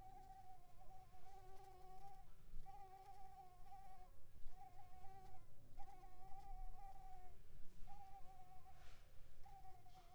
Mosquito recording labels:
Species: Anopheles coustani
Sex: female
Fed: unfed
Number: one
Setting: cup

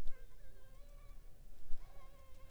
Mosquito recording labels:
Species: Anopheles funestus s.s.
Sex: female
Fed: unfed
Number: one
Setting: cup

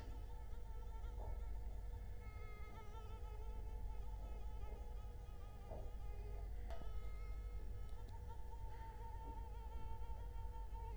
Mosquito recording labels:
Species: Culex quinquefasciatus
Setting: cup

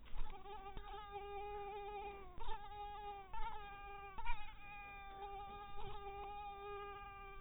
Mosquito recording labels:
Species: mosquito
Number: one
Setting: cup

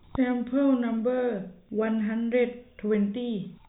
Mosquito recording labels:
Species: no mosquito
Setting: cup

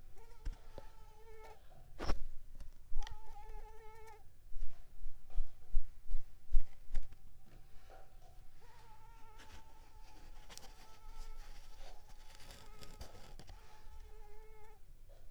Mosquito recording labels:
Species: Mansonia uniformis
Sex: female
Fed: unfed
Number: one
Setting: cup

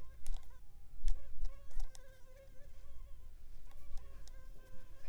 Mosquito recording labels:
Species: Culex pipiens complex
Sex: female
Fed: unfed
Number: one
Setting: cup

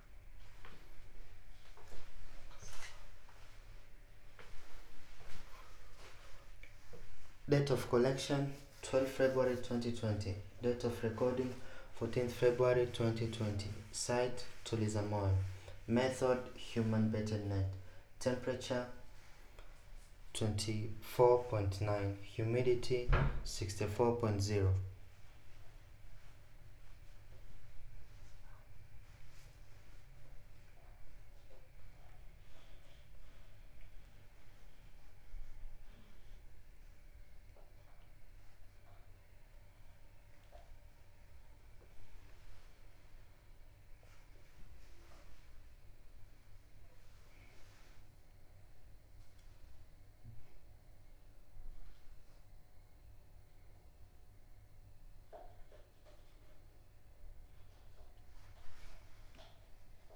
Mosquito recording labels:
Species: no mosquito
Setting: cup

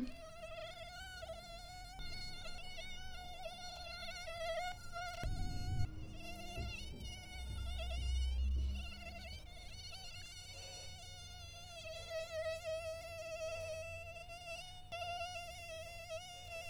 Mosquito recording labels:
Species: Toxorhynchites brevipalpis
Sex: male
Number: one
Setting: cup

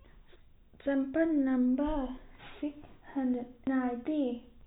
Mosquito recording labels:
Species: no mosquito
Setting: cup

